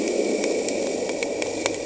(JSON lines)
{"label": "anthrophony, boat engine", "recorder": "HydroMoth"}